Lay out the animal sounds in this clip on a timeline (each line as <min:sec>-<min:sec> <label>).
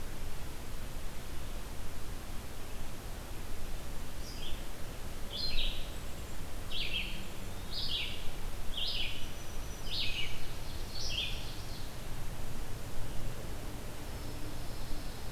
0:04.1-0:11.4 Red-eyed Vireo (Vireo olivaceus)
0:05.7-0:06.4 Golden-crowned Kinglet (Regulus satrapa)
0:07.3-0:08.0 Eastern Wood-Pewee (Contopus virens)
0:09.1-0:10.3 Black-throated Green Warbler (Setophaga virens)
0:10.2-0:11.8 Ovenbird (Seiurus aurocapilla)
0:14.0-0:15.3 Pine Warbler (Setophaga pinus)